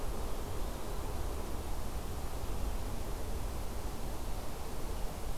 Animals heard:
forest ambience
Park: Marsh-Billings-Rockefeller National Historical Park